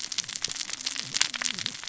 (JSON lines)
{"label": "biophony, cascading saw", "recorder": "SoundTrap 600 or HydroMoth"}